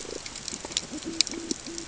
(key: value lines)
label: ambient
recorder: HydroMoth